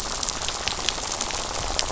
{"label": "biophony, rattle", "recorder": "SoundTrap 500"}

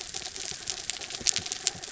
{"label": "anthrophony, mechanical", "recorder": "SoundTrap 300"}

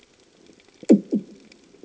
{"label": "anthrophony, bomb", "recorder": "HydroMoth"}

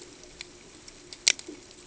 {"label": "ambient", "recorder": "HydroMoth"}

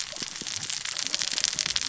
{"label": "biophony, cascading saw", "recorder": "SoundTrap 600 or HydroMoth"}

